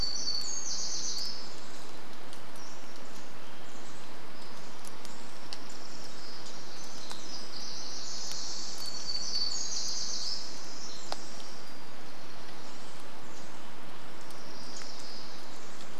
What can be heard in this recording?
warbler song, Pacific-slope Flycatcher call, Pacific Wren song, unidentified sound